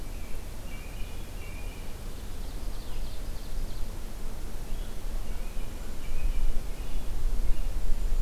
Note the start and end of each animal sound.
[0.00, 1.84] American Robin (Turdus migratorius)
[1.81, 3.86] Ovenbird (Seiurus aurocapilla)
[4.54, 7.70] American Robin (Turdus migratorius)
[5.58, 6.10] Hermit Thrush (Catharus guttatus)
[7.67, 8.20] Hermit Thrush (Catharus guttatus)

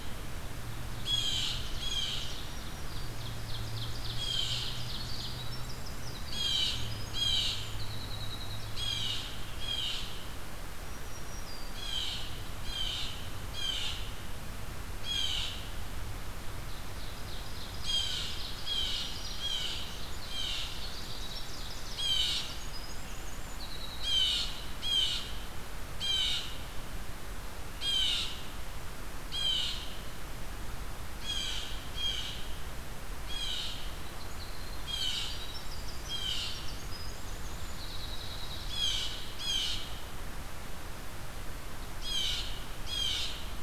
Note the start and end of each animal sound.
[0.84, 2.46] Blue Jay (Cyanocitta cristata)
[2.13, 3.37] Black-throated Green Warbler (Setophaga virens)
[2.60, 5.39] Ovenbird (Seiurus aurocapilla)
[4.07, 5.04] Blue Jay (Cyanocitta cristata)
[4.93, 8.97] Winter Wren (Troglodytes hiemalis)
[6.20, 7.78] Blue Jay (Cyanocitta cristata)
[8.70, 10.23] Blue Jay (Cyanocitta cristata)
[10.82, 11.99] Black-throated Green Warbler (Setophaga virens)
[11.57, 14.09] Blue Jay (Cyanocitta cristata)
[14.81, 15.57] Blue Jay (Cyanocitta cristata)
[16.47, 19.54] Ovenbird (Seiurus aurocapilla)
[17.71, 20.78] Blue Jay (Cyanocitta cristata)
[20.45, 22.11] Ovenbird (Seiurus aurocapilla)
[20.97, 24.63] Winter Wren (Troglodytes hiemalis)
[21.82, 22.75] Blue Jay (Cyanocitta cristata)
[23.93, 26.53] Blue Jay (Cyanocitta cristata)
[27.72, 28.43] Blue Jay (Cyanocitta cristata)
[29.08, 29.81] Blue Jay (Cyanocitta cristata)
[31.12, 32.50] Blue Jay (Cyanocitta cristata)
[33.17, 33.98] Blue Jay (Cyanocitta cristata)
[33.71, 39.05] Winter Wren (Troglodytes hiemalis)
[34.67, 35.58] Blue Jay (Cyanocitta cristata)
[35.93, 36.69] Blue Jay (Cyanocitta cristata)
[38.66, 40.01] Blue Jay (Cyanocitta cristata)
[41.87, 43.41] Blue Jay (Cyanocitta cristata)

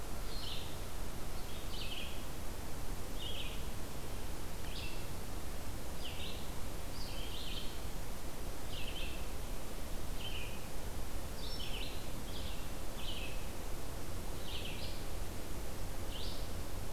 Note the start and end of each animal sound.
[0.00, 16.92] Red-eyed Vireo (Vireo olivaceus)

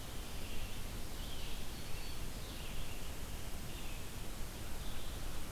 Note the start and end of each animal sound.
[0.00, 3.08] Red-eyed Vireo (Vireo olivaceus)
[1.52, 2.34] Black-throated Green Warbler (Setophaga virens)
[3.44, 5.51] Red-eyed Vireo (Vireo olivaceus)

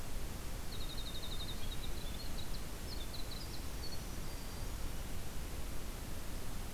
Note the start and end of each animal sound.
[0.60, 4.92] Winter Wren (Troglodytes hiemalis)
[3.65, 4.77] Black-capped Chickadee (Poecile atricapillus)

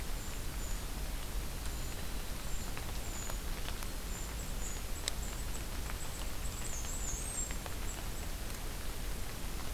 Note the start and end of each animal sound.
[0.04, 4.85] Brown Creeper (Certhia americana)
[4.18, 8.34] Golden-crowned Kinglet (Regulus satrapa)
[6.36, 7.60] Black-and-white Warbler (Mniotilta varia)

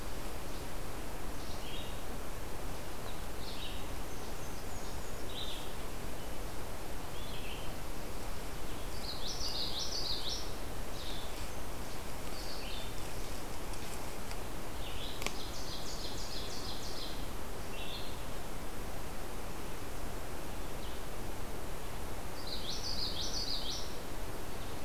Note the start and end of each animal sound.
[0.00, 18.55] Blue-headed Vireo (Vireo solitarius)
[3.79, 5.30] Blackburnian Warbler (Setophaga fusca)
[8.85, 10.57] Common Yellowthroat (Geothlypis trichas)
[15.06, 17.28] Ovenbird (Seiurus aurocapilla)
[22.29, 23.94] Common Yellowthroat (Geothlypis trichas)

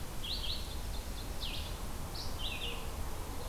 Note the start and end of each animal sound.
[0.00, 3.48] Red-eyed Vireo (Vireo olivaceus)
[0.20, 1.44] Ovenbird (Seiurus aurocapilla)
[2.53, 3.48] Mourning Dove (Zenaida macroura)

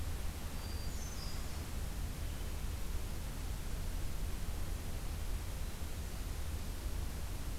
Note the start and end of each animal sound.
[0.39, 2.06] Hermit Thrush (Catharus guttatus)

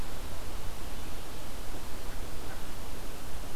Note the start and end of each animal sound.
[1.66, 3.56] Common Merganser (Mergus merganser)

